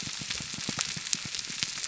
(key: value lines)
label: biophony, pulse
recorder: SoundTrap 300